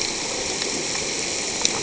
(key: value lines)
label: ambient
recorder: HydroMoth